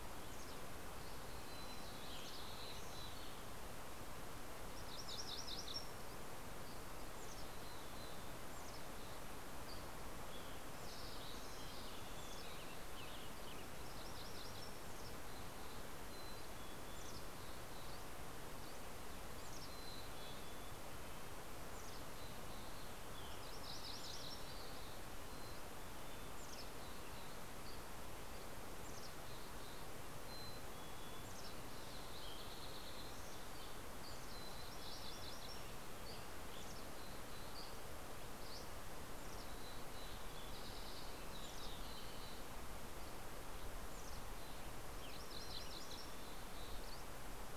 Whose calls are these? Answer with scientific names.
Poecile gambeli, Geothlypis tolmiei, Empidonax oberholseri, Troglodytes aedon, Piranga ludoviciana, Sitta canadensis, Pipilo maculatus